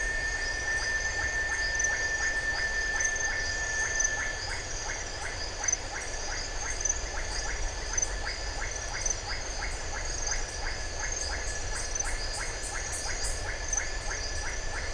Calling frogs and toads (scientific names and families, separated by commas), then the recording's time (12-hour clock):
Leptodactylus notoaktites (Leptodactylidae)
7:00pm